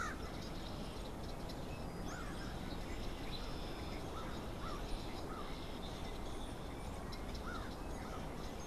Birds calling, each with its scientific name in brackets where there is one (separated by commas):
Red-winged Blackbird (Agelaius phoeniceus), American Crow (Corvus brachyrhynchos)